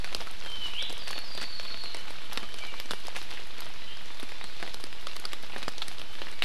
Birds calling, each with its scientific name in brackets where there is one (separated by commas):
Apapane (Himatione sanguinea)